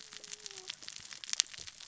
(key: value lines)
label: biophony, cascading saw
recorder: SoundTrap 600 or HydroMoth